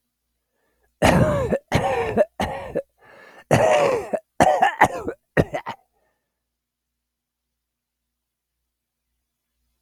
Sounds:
Cough